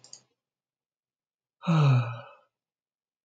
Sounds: Sigh